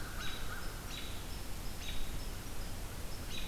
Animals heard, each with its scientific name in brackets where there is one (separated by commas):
American Crow (Corvus brachyrhynchos), American Robin (Turdus migratorius)